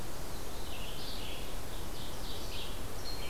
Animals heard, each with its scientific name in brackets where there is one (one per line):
Red-eyed Vireo (Vireo olivaceus)
Ovenbird (Seiurus aurocapilla)